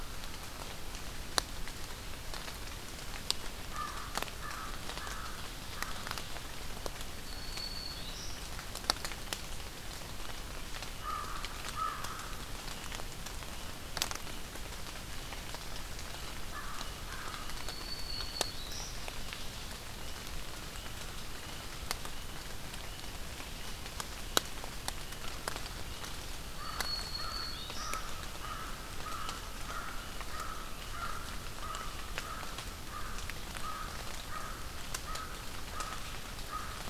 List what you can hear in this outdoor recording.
American Crow, Black-throated Green Warbler